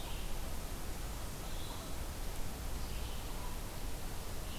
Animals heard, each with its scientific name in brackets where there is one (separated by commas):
Red-eyed Vireo (Vireo olivaceus), Canada Goose (Branta canadensis)